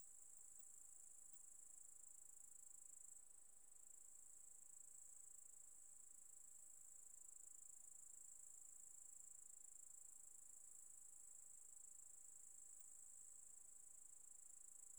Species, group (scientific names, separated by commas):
Tettigonia cantans, Orthoptera